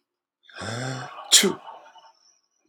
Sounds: Sneeze